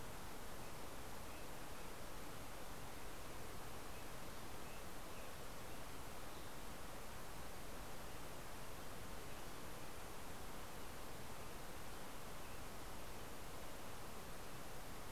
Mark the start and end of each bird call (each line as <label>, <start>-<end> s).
American Robin (Turdus migratorius), 0.0-10.8 s